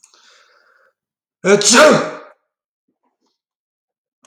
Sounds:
Sneeze